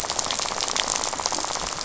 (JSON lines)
{"label": "biophony, rattle", "recorder": "SoundTrap 500"}